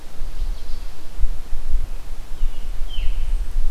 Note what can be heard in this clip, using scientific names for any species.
Turdus migratorius, Catharus fuscescens